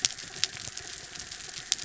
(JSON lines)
{"label": "anthrophony, mechanical", "recorder": "SoundTrap 300"}